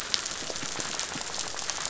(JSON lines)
{"label": "biophony, rattle", "recorder": "SoundTrap 500"}